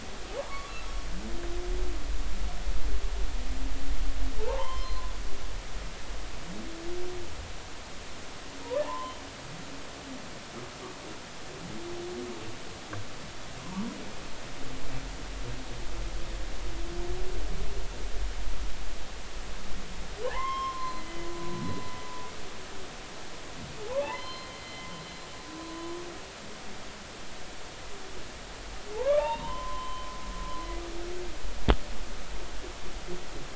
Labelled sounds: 0.5	0.7	humpback whale, 0.99 to 1.2 kHz
4.4	5.1	humpback whale, 0.80 to 3.2 kHz
8.8	9.1	humpback whale, 0.83 to 1.1 kHz
13.6	13.9	humpback whale, 0.90 to 1.1 kHz
20.2	21.3	humpback whale, 0.80 to 5.4 kHz
24.0	24.9	humpback whale, 0.80 to 4.2 kHz
28.9	30.1	humpback whale, 0.80 to 3.8 kHz

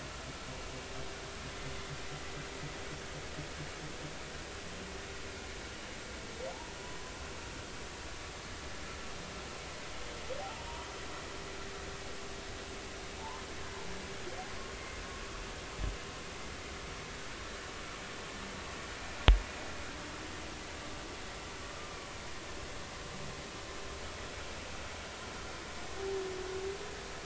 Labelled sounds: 10.4	10.7	humpback whale, 0.80 to 0.99 kHz
13.2	13.4	humpback whale, 0.83 to 1.1 kHz
21.7	22.0	humpback whale, 1.2 to 1.3 kHz

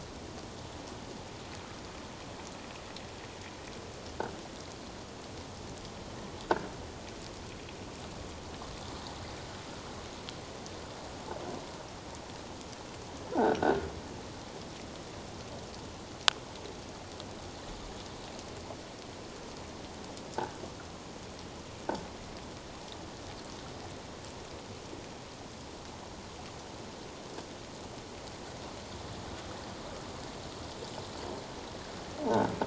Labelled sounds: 13.3	13.9	croaking sound likely from a nearby submerged object, 1.3 to 1.7 kHz

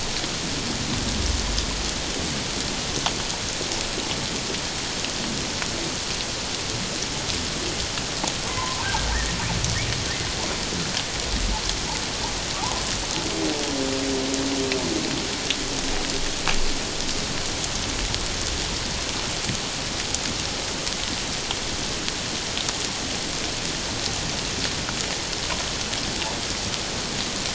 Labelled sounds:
8.5	8.9	humpback whale, 0.84 to 1.1 kHz

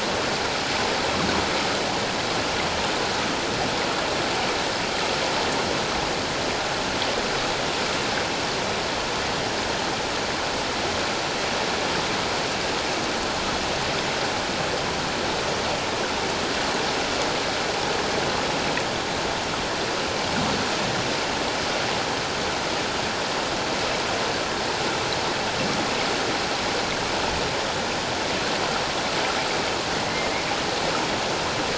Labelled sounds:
30.0	30.3	humpback whale, 1.9 to 2.2 kHz

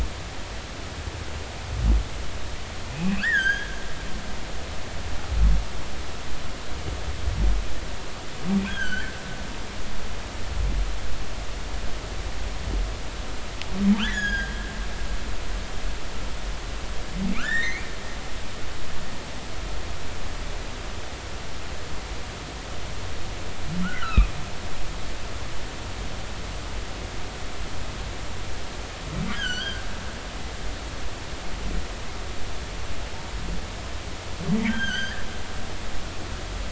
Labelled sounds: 3.0	3.8	humpback whale, 1.3 to 6.7 kHz
8.7	9.1	humpback whale, 1.4 to 3.4 kHz
14.0	14.5	humpback whale, 1.3 to 7.0 kHz
17.3	17.9	humpback whale, 1.1 to 3.8 kHz
23.8	24.3	humpback whale, 1.1 to 2.8 kHz
29.3	29.8	humpback whale, 1.4 to 3.4 kHz
34.5	35.2	humpback whale, 1.4 to 6.4 kHz

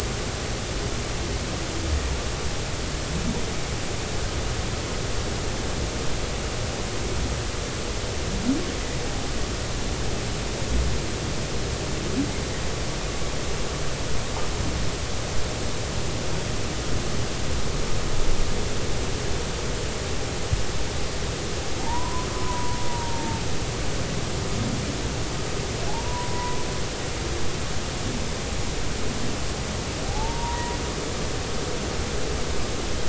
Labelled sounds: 21.8	23.4	humpback whale, 0.83 to 1.1 kHz
25.9	26.6	humpback whale, 0.80 to 1.0 kHz
30.0	30.8	humpback whale, 0.80 to 1.0 kHz

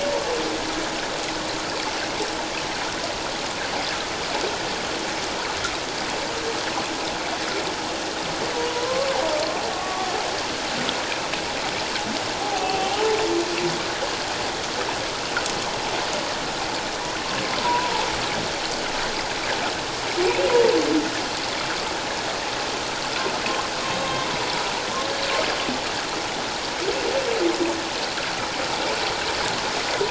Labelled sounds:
8.7	10.1	humpback whale, 0.91 to 1.2 kHz
12.4	13.1	humpback whale, 0.78 to 3.1 kHz
17.6	18.1	humpback whale, 0.81 to 1.0 kHz
24.0	24.3	humpback whale, 1.0 to 1.1 kHz

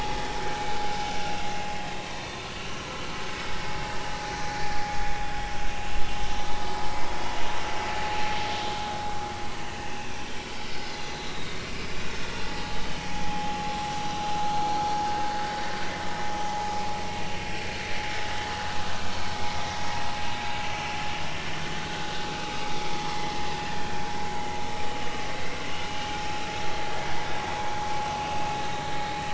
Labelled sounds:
1.4	2.4	vessel noise, 0.93 to 4.3 kHz
3.2	3.6	vessel noise, 5.1 to 5.3 kHz
9.9	10.1	vessel noise, 2.5 to 2.9 kHz
11.3	11.9	vessel noise, 2.4 to 4.0 kHz
13.0	13.9	vessel noise, 0.80 to 0.96 kHz
17.4	17.7	vessel noise, 2.4 to 2.5 kHz
23.1	23.4	vessel noise, 2.0 to 2.2 kHz

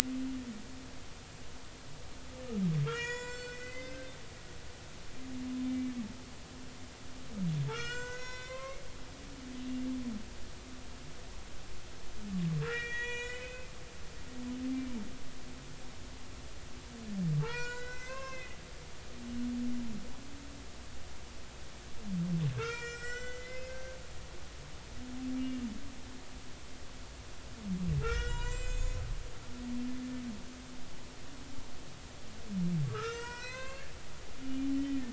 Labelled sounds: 2.8	4.1	humpback whale, 0.90 to 7.9 kHz
5.7	6.0	humpback whale, 2.2 to 2.3 kHz
7.7	8.8	humpback whale, 0.93 to 7.5 kHz
12.6	13.7	humpback whale, 0.93 to 7.4 kHz
17.4	18.6	humpback whale, 0.83 to 7.7 kHz
22.6	24.0	humpback whale, 1.2 to 7.5 kHz
25.3	25.6	humpback whale, 2.2 to 2.4 kHz
28.0	29.0	humpback whale, 0.90 to 7.6 kHz
32.8	35.1	humpback whale, 0.90 to 7.8 kHz

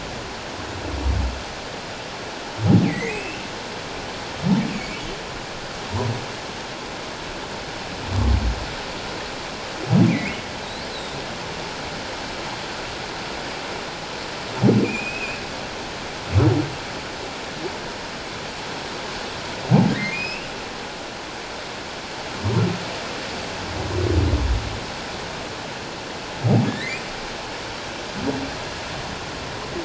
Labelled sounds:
2.8	3.4	humpback whale, 1.9 to 2.8 kHz
4.7	5.0	humpback whale, 2.2 to 2.8 kHz
10.1	10.4	humpback whale, 1.9 to 2.6 kHz
10.9	11.2	humpback whale, 3.5 to 4.2 kHz
14.8	15.4	humpback whale, 2.3 to 2.7 kHz
20.1	20.5	humpback whale, 2.3 to 2.9 kHz
26.7	27.0	humpback whale, 1.6 to 2.6 kHz

